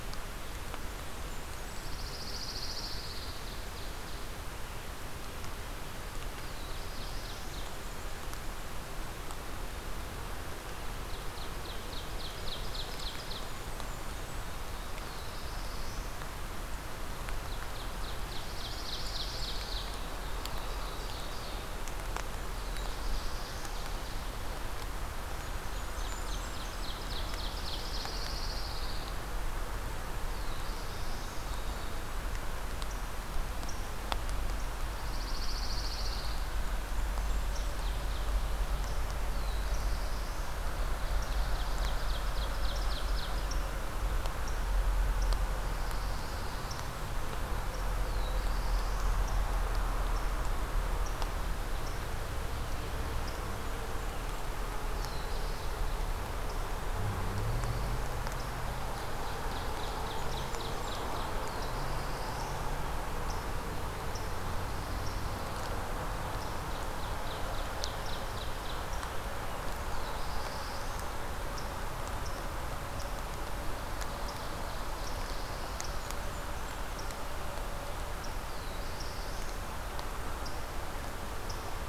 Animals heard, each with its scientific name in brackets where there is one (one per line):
Pine Warbler (Setophaga pinus)
Blackburnian Warbler (Setophaga fusca)
Black-throated Blue Warbler (Setophaga caerulescens)
Ovenbird (Seiurus aurocapilla)